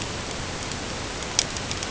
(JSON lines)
{"label": "ambient", "recorder": "HydroMoth"}